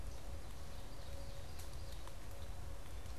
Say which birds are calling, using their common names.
Ovenbird